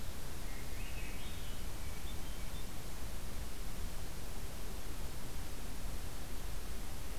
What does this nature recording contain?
Swainson's Thrush, Hermit Thrush